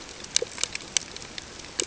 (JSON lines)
{"label": "ambient", "recorder": "HydroMoth"}